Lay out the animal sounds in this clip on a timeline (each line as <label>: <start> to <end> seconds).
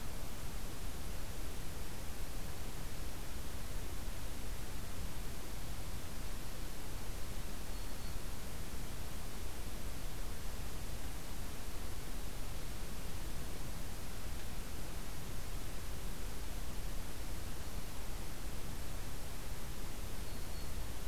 Black-throated Green Warbler (Setophaga virens): 7.6 to 8.2 seconds
Black-throated Green Warbler (Setophaga virens): 20.1 to 20.8 seconds